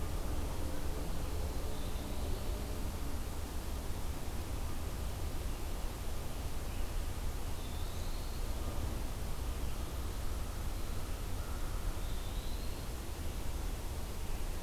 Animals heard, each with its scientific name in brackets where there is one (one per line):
Eastern Wood-Pewee (Contopus virens)